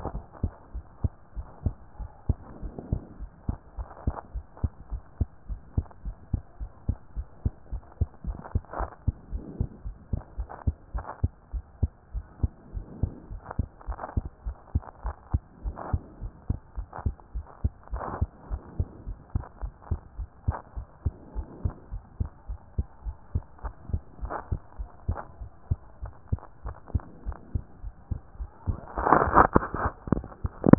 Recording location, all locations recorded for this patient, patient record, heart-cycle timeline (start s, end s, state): pulmonary valve (PV)
aortic valve (AV)+pulmonary valve (PV)+tricuspid valve (TV)+mitral valve (MV)
#Age: Child
#Sex: Female
#Height: 132.0 cm
#Weight: 33.4 kg
#Pregnancy status: False
#Murmur: Absent
#Murmur locations: nan
#Most audible location: nan
#Systolic murmur timing: nan
#Systolic murmur shape: nan
#Systolic murmur grading: nan
#Systolic murmur pitch: nan
#Systolic murmur quality: nan
#Diastolic murmur timing: nan
#Diastolic murmur shape: nan
#Diastolic murmur grading: nan
#Diastolic murmur pitch: nan
#Diastolic murmur quality: nan
#Outcome: Abnormal
#Campaign: 2014 screening campaign
0.00	0.06	diastole
0.06	0.24	S1
0.24	0.40	systole
0.40	0.54	S2
0.54	0.74	diastole
0.74	0.84	S1
0.84	1.00	systole
1.00	1.14	S2
1.14	1.36	diastole
1.36	1.48	S1
1.48	1.62	systole
1.62	1.76	S2
1.76	1.98	diastole
1.98	2.10	S1
2.10	2.28	systole
2.28	2.44	S2
2.44	2.62	diastole
2.62	2.76	S1
2.76	2.90	systole
2.90	3.04	S2
3.04	3.20	diastole
3.20	3.30	S1
3.30	3.46	systole
3.46	3.58	S2
3.58	3.78	diastole
3.78	3.88	S1
3.88	4.04	systole
4.04	4.16	S2
4.16	4.34	diastole
4.34	4.44	S1
4.44	4.60	systole
4.60	4.72	S2
4.72	4.90	diastole
4.90	5.02	S1
5.02	5.16	systole
5.16	5.30	S2
5.30	5.48	diastole
5.48	5.60	S1
5.60	5.74	systole
5.74	5.86	S2
5.86	6.04	diastole
6.04	6.16	S1
6.16	6.30	systole
6.30	6.44	S2
6.44	6.60	diastole
6.60	6.70	S1
6.70	6.86	systole
6.86	6.98	S2
6.98	7.16	diastole
7.16	7.26	S1
7.26	7.42	systole
7.42	7.54	S2
7.54	7.72	diastole
7.72	7.82	S1
7.82	8.00	systole
8.00	8.10	S2
8.10	8.26	diastole
8.26	8.40	S1
8.40	8.54	systole
8.54	8.64	S2
8.64	8.78	diastole
8.78	8.90	S1
8.90	9.04	systole
9.04	9.18	S2
9.18	9.32	diastole
9.32	9.46	S1
9.46	9.58	systole
9.58	9.68	S2
9.68	9.84	diastole
9.84	9.96	S1
9.96	10.12	systole
10.12	10.24	S2
10.24	10.38	diastole
10.38	10.48	S1
10.48	10.66	systole
10.66	10.78	S2
10.78	10.94	diastole
10.94	11.04	S1
11.04	11.20	systole
11.20	11.32	S2
11.32	11.52	diastole
11.52	11.64	S1
11.64	11.82	systole
11.82	11.92	S2
11.92	12.14	diastole
12.14	12.26	S1
12.26	12.40	systole
12.40	12.54	S2
12.54	12.74	diastole
12.74	12.88	S1
12.88	13.02	systole
13.02	13.14	S2
13.14	13.30	diastole
13.30	13.42	S1
13.42	13.54	systole
13.54	13.68	S2
13.68	13.88	diastole
13.88	13.98	S1
13.98	14.16	systole
14.16	14.26	S2
14.26	14.44	diastole
14.44	14.56	S1
14.56	14.72	systole
14.72	14.86	S2
14.86	15.04	diastole
15.04	15.14	S1
15.14	15.30	systole
15.30	15.42	S2
15.42	15.64	diastole
15.64	15.76	S1
15.76	15.88	systole
15.88	16.02	S2
16.02	16.20	diastole
16.20	16.32	S1
16.32	16.48	systole
16.48	16.60	S2
16.60	16.76	diastole
16.76	16.88	S1
16.88	17.04	systole
17.04	17.16	S2
17.16	17.34	diastole
17.34	17.46	S1
17.46	17.60	systole
17.60	17.76	S2
17.76	17.92	diastole
17.92	18.06	S1
18.06	18.20	systole
18.20	18.30	S2
18.30	18.50	diastole
18.50	18.62	S1
18.62	18.78	systole
18.78	18.88	S2
18.88	19.06	diastole
19.06	19.18	S1
19.18	19.32	systole
19.32	19.46	S2
19.46	19.62	diastole
19.62	19.74	S1
19.74	19.90	systole
19.90	20.00	S2
20.00	20.18	diastole
20.18	20.28	S1
20.28	20.44	systole
20.44	20.58	S2
20.58	20.76	diastole
20.76	20.86	S1
20.86	21.02	systole
21.02	21.16	S2
21.16	21.36	diastole
21.36	21.48	S1
21.48	21.62	systole
21.62	21.76	S2
21.76	21.92	diastole
21.92	22.02	S1
22.02	22.16	systole
22.16	22.32	S2
22.32	22.48	diastole
22.48	22.58	S1
22.58	22.74	systole
22.74	22.88	S2
22.88	23.04	diastole
23.04	23.16	S1
23.16	23.34	systole
23.34	23.44	S2
23.44	23.64	diastole
23.64	23.74	S1
23.74	23.88	systole
23.88	24.02	S2
24.02	24.22	diastole
24.22	24.32	S1
24.32	24.48	systole
24.48	24.60	S2
24.60	24.78	diastole
24.78	24.88	S1
24.88	25.04	systole
25.04	25.20	S2
25.20	25.40	diastole
25.40	25.50	S1
25.50	25.70	systole
25.70	25.80	S2
25.80	26.02	diastole
26.02	26.12	S1
26.12	26.28	systole
26.28	26.42	S2
26.42	26.64	diastole
26.64	26.76	S1
26.76	26.90	systole
26.90	27.04	S2
27.04	27.24	diastole
27.24	27.36	S1
27.36	27.54	systole
27.54	27.64	S2
27.64	27.82	diastole
27.82	27.94	S1
27.94	28.12	systole
28.12	28.20	S2
28.20	28.38	diastole
28.38	28.50	S1
28.50	28.68	systole
28.68	28.84	S2
28.84	29.06	diastole
29.06	29.24	S1
29.24	29.36	systole
29.36	29.52	S2
29.52	29.74	diastole
29.74	29.90	S1
29.90	30.08	systole
30.08	30.24	S2
30.24	30.40	diastole
30.40	30.52	S1
30.52	30.66	systole
30.66	30.78	S2